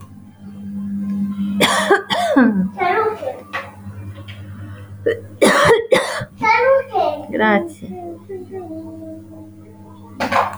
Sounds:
Cough